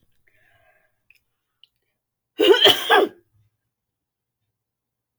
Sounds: Sneeze